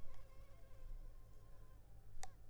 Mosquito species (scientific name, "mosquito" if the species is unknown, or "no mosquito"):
Culex pipiens complex